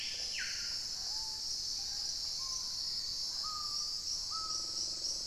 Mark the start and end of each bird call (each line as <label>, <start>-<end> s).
Black-faced Antthrush (Formicarius analis), 0.0-0.8 s
Screaming Piha (Lipaugus vociferans), 0.0-5.3 s
Red-necked Woodpecker (Campephilus rubricollis), 0.0-0.5 s
Hauxwell's Thrush (Turdus hauxwelli), 1.6-5.3 s